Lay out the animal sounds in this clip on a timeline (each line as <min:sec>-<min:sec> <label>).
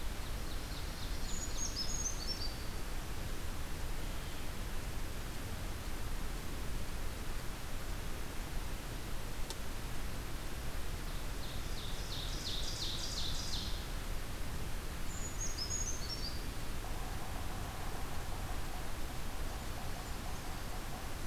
0:00.0-0:01.9 Ovenbird (Seiurus aurocapilla)
0:01.2-0:02.8 Brown Creeper (Certhia americana)
0:10.9-0:13.9 Ovenbird (Seiurus aurocapilla)
0:14.9-0:16.6 Brown Creeper (Certhia americana)
0:16.8-0:21.3 Yellow-bellied Sapsucker (Sphyrapicus varius)